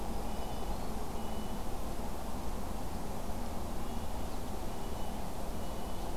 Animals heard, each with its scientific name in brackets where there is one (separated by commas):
Red-breasted Nuthatch (Sitta canadensis), Black-throated Green Warbler (Setophaga virens)